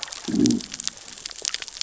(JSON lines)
{"label": "biophony, growl", "recorder": "SoundTrap 600 or HydroMoth"}